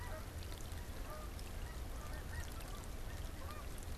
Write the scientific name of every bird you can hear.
Branta canadensis, Anser caerulescens